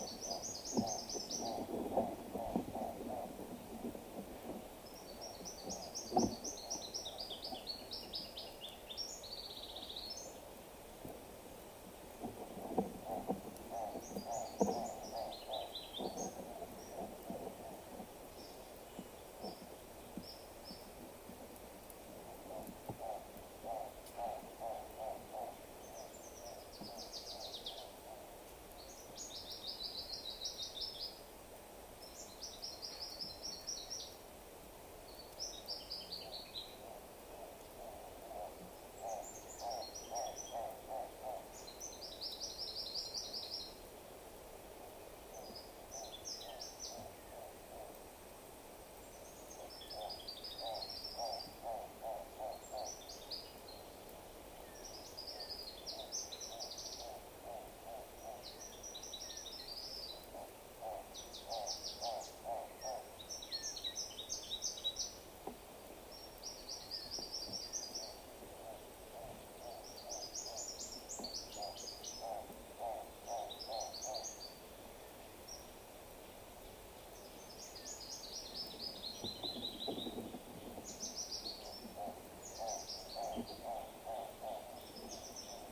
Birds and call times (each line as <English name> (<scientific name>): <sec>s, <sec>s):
Hartlaub's Turaco (Tauraco hartlaubi): 2.4s, 13.7s, 24.2s, 39.7s, 51.3s, 60.9s, 72.9s, 83.8s
Brown Woodland-Warbler (Phylloscopus umbrovirens): 5.7s, 32.9s, 50.3s, 67.5s